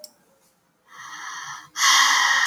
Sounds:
Sigh